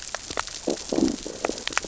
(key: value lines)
label: biophony, growl
recorder: SoundTrap 600 or HydroMoth